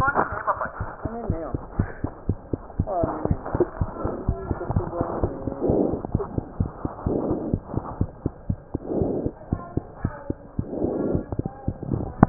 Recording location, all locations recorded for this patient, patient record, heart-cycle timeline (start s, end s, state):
mitral valve (MV)
mitral valve (MV)
#Age: Child
#Sex: Male
#Height: 83.0 cm
#Weight: 12.31 kg
#Pregnancy status: False
#Murmur: Unknown
#Murmur locations: nan
#Most audible location: nan
#Systolic murmur timing: nan
#Systolic murmur shape: nan
#Systolic murmur grading: nan
#Systolic murmur pitch: nan
#Systolic murmur quality: nan
#Diastolic murmur timing: nan
#Diastolic murmur shape: nan
#Diastolic murmur grading: nan
#Diastolic murmur pitch: nan
#Diastolic murmur quality: nan
#Outcome: Normal
#Campaign: 2015 screening campaign
0.00	0.78	unannotated
0.78	0.87	S1
0.87	1.03	systole
1.03	1.11	S2
1.11	1.27	diastole
1.27	1.37	S1
1.37	1.51	systole
1.51	1.60	S2
1.60	1.76	diastole
1.76	1.88	S1
1.88	2.01	systole
2.01	2.12	S2
2.12	2.26	diastole
2.26	2.38	S1
2.38	2.50	systole
2.50	2.60	S2
2.60	2.76	diastole
2.76	2.88	S1
2.88	3.00	systole
3.00	3.12	S2
3.12	3.28	diastole
3.28	3.40	S1
3.40	3.51	systole
3.51	3.66	S2
3.66	3.77	diastole
3.77	3.90	S1
3.90	4.02	systole
4.02	4.11	S2
4.11	4.25	diastole
4.25	4.38	S1
4.38	4.48	systole
4.48	4.58	S2
4.58	4.72	diastole
4.72	4.86	S1
4.86	4.97	systole
4.97	5.08	S2
5.08	5.22	diastole
5.22	5.34	S1
5.34	5.45	systole
5.45	5.53	S2
5.53	12.29	unannotated